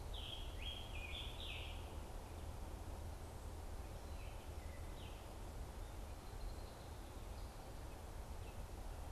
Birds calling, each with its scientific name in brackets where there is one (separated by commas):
Scarlet Tanager (Piranga olivacea)